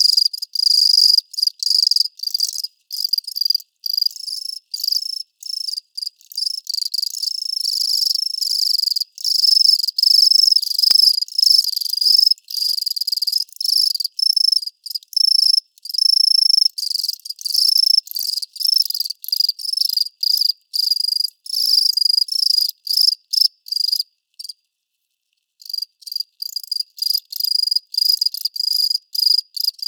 Is it a penguin?
no